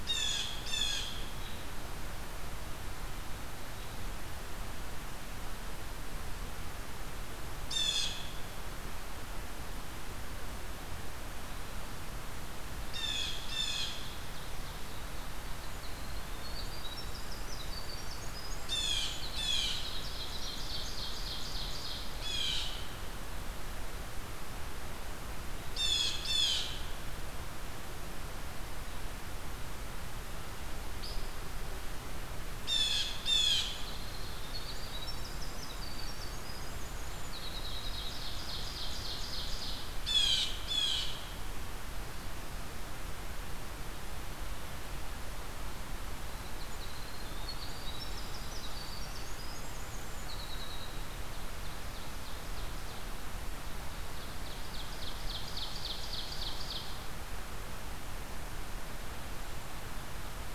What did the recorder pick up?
Blue Jay, Winter Wren, Ovenbird, Hairy Woodpecker